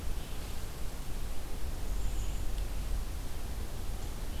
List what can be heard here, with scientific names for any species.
Vireo olivaceus, Setophaga castanea